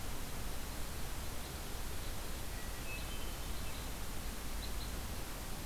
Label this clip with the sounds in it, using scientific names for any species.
Loxia curvirostra, Catharus guttatus